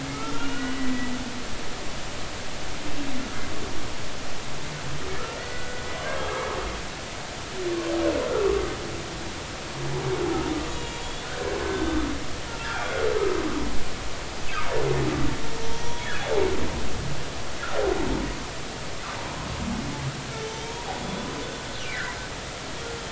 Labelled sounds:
0.1	0.9	humpback whale, 1.2 to 2.9 kHz
5.4	6.4	humpback whale, 1.4 to 2.0 kHz
10.7	12.0	humpback whale, 1.4 to 3.9 kHz
12.6	13.0	humpback whale, 1.3 to 1.8 kHz
15.7	16.3	humpback whale, 0.90 to 6.2 kHz
21.0	21.3	humpback whale, 3.4 to 3.6 kHz
21.8	22.2	humpback whale, 1.4 to 2.5 kHz

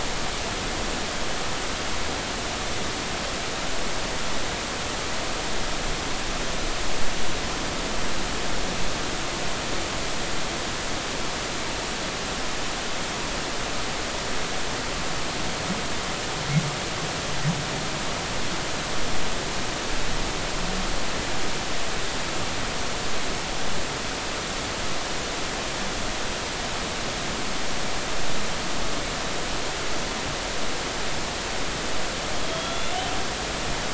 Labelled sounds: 32.4	33.0	humpback whale, 3.2 to 3.5 kHz

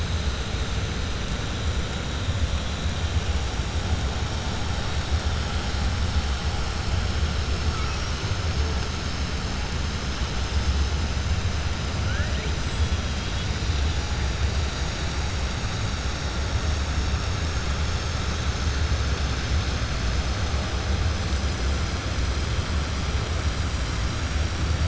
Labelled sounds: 7.8	8.2	killer whale, 5.1 to 6.5 kHz

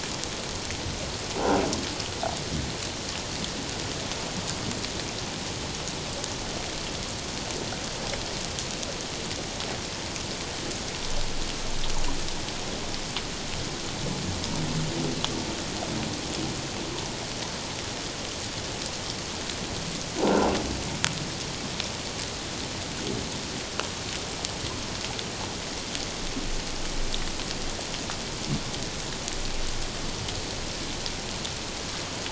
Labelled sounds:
20.2	20.5	humpback whale, 0.78 to 1.6 kHz

